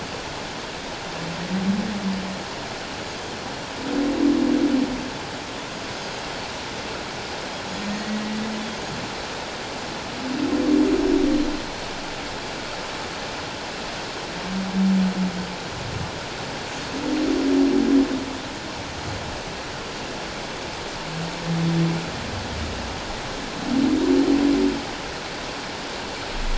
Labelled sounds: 6.0	6.2	Pacific white-sided dolphin, 6.3 to 6.6 kHz
7.9	8.4	humpback whale, 1.8 to 2.0 kHz
10.7	11.1	Pacific white-sided dolphin, 6.6 to 6.9 kHz

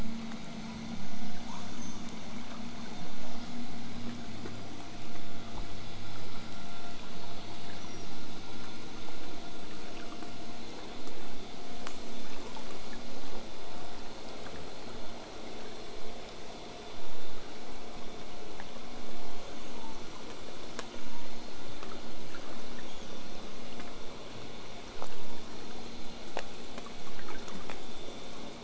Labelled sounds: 1.4	2.1	killer whale, southern resident, 0.58 to 8.0 kHz
7.8	8.1	killer whale, southern resident, whistle, 5.2 to 6.1 kHz
22.7	23.2	killer whale, southern resident, whistle, 5.5 to 6.9 kHz
25.0	28.6	killer whale, southern resident, 6.7 to 8.0 kHz

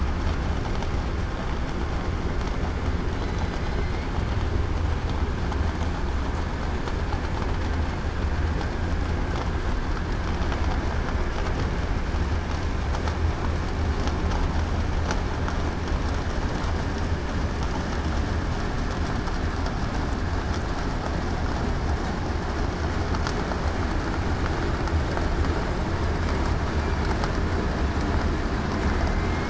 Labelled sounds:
3.6	4.0	killer whale, southern resident, 4.0 to 4.2 kHz

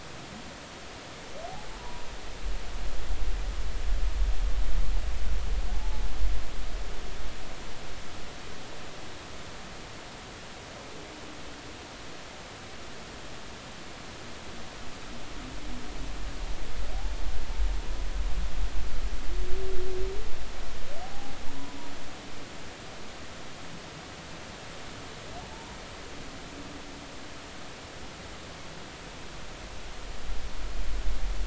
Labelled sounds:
1.8	2.0	humpback whale, 0.90 to 1.0 kHz
5.7	6.0	humpback whale, 0.80 to 0.93 kHz
21.0	21.3	humpback whale, 0.80 to 0.90 kHz
25.5	25.8	humpback whale, 0.83 to 1.1 kHz

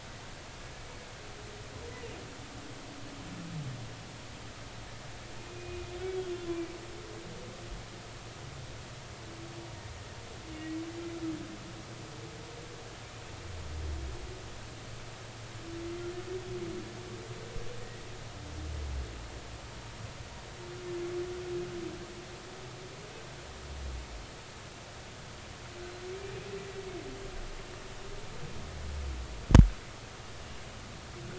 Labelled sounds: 5.5	6.4	humpback whale, 2.4 to 3.5 kHz
17.8	18.0	humpback whale, 1.8 to 2.0 kHz

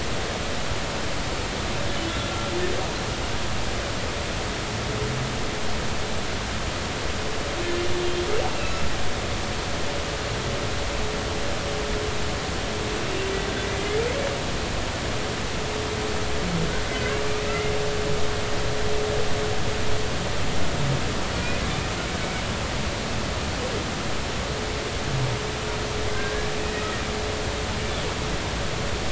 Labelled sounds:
2.1	2.3	humpback whale, 3.3 to 3.8 kHz
16.9	17.7	humpback whale, 1.5 to 2.2 kHz
26.1	26.5	humpback whale, 1.5 to 1.7 kHz

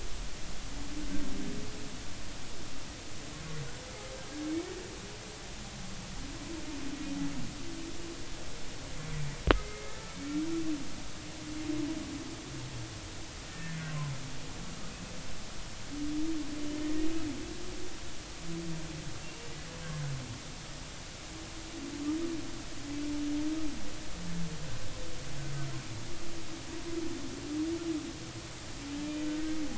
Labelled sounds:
9.5	10.4	humpback whale, 1.2 to 2.3 kHz
13.5	13.8	humpback whale, 1.7 to 1.9 kHz
17.0	17.2	humpback whale, 2.4 to 2.6 kHz
19.2	19.5	humpback whale, 2.7 to 2.8 kHz
29.3	29.6	humpback whale, 1.4 to 1.6 kHz

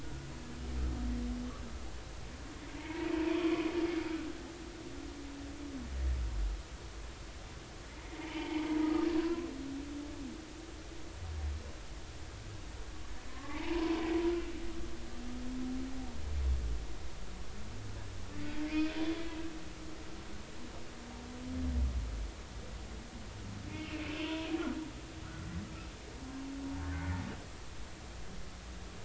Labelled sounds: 0.0	0.3	humpback whale, 1.4 to 1.5 kHz
2.8	3.5	humpback whale, 0.86 to 2.3 kHz
8.2	9.5	humpback whale, 0.80 to 3.1 kHz
13.3	14.0	humpback whale, 0.83 to 1.2 kHz
18.6	18.9	humpback whale, 2.1 to 2.6 kHz
23.7	24.3	humpback whale, 2.4 to 2.9 kHz
26.8	27.1	humpback whale, 1.4 to 1.6 kHz

